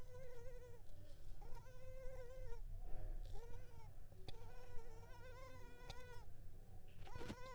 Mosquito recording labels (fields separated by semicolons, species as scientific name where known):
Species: Culex pipiens complex; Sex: female; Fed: unfed; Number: one; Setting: cup